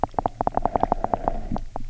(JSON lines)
{"label": "biophony, knock", "recorder": "SoundTrap 300"}